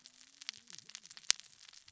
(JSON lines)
{"label": "biophony, cascading saw", "recorder": "SoundTrap 600 or HydroMoth"}